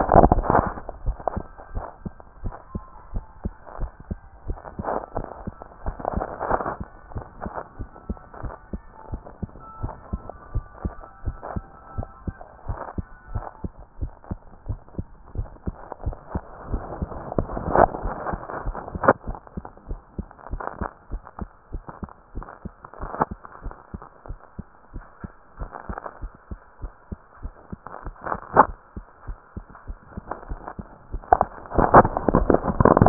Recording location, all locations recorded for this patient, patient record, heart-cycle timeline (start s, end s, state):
tricuspid valve (TV)
aortic valve (AV)+pulmonary valve (PV)+tricuspid valve (TV)+mitral valve (MV)
#Age: Child
#Sex: Female
#Height: nan
#Weight: nan
#Pregnancy status: False
#Murmur: Absent
#Murmur locations: nan
#Most audible location: nan
#Systolic murmur timing: nan
#Systolic murmur shape: nan
#Systolic murmur grading: nan
#Systolic murmur pitch: nan
#Systolic murmur quality: nan
#Diastolic murmur timing: nan
#Diastolic murmur shape: nan
#Diastolic murmur grading: nan
#Diastolic murmur pitch: nan
#Diastolic murmur quality: nan
#Outcome: Normal
#Campaign: 2015 screening campaign
0.00	7.74	unannotated
7.74	7.88	S1
7.88	8.06	systole
8.06	8.18	S2
8.18	8.42	diastole
8.42	8.54	S1
8.54	8.72	systole
8.72	8.82	S2
8.82	9.10	diastole
9.10	9.22	S1
9.22	9.42	systole
9.42	9.52	S2
9.52	9.80	diastole
9.80	9.94	S1
9.94	10.12	systole
10.12	10.22	S2
10.22	10.52	diastole
10.52	10.66	S1
10.66	10.84	systole
10.84	10.96	S2
10.96	11.24	diastole
11.24	11.38	S1
11.38	11.52	systole
11.52	11.66	S2
11.66	11.94	diastole
11.94	12.08	S1
12.08	12.26	systole
12.26	12.38	S2
12.38	12.66	diastole
12.66	12.78	S1
12.78	12.94	systole
12.94	13.06	S2
13.06	13.30	diastole
13.30	13.44	S1
13.44	13.60	systole
13.60	13.72	S2
13.72	13.98	diastole
13.98	14.12	S1
14.12	14.28	systole
14.28	14.42	S2
14.42	14.66	diastole
14.66	14.80	S1
14.80	14.96	systole
14.96	15.06	S2
15.06	15.34	diastole
15.34	15.50	S1
15.50	15.64	systole
15.64	15.78	S2
15.78	16.04	diastole
16.04	16.18	S1
16.18	16.32	systole
16.32	16.46	S2
16.46	16.68	diastole
16.68	16.84	S1
16.84	33.09	unannotated